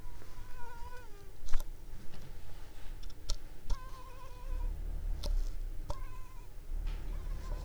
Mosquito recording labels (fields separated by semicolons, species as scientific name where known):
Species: Culex pipiens complex; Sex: female; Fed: unfed; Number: one; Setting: cup